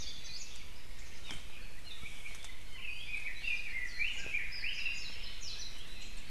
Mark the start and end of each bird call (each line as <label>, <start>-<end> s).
Apapane (Himatione sanguinea), 1.2-1.4 s
Apapane (Himatione sanguinea), 1.8-2.0 s
Red-billed Leiothrix (Leiothrix lutea), 2.6-5.3 s
Apapane (Himatione sanguinea), 2.8-3.2 s
Warbling White-eye (Zosterops japonicus), 3.8-4.1 s
Warbling White-eye (Zosterops japonicus), 4.5-6.3 s